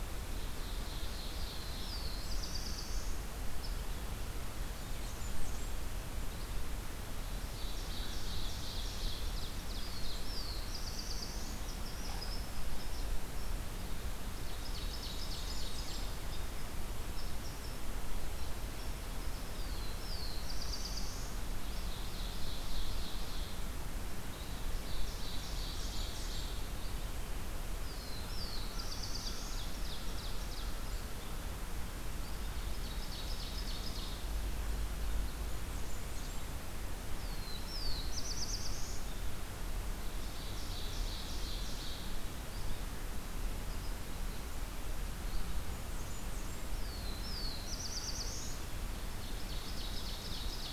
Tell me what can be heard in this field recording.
Ovenbird, Black-throated Blue Warbler, Blackburnian Warbler, unknown mammal, Red-eyed Vireo